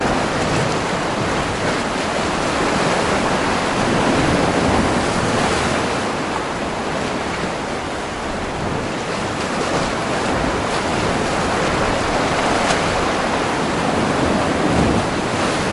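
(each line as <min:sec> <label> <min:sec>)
0:00.0 Small waves repeatedly strike the rocky shoreline, creating a rhythmic sound. 0:15.7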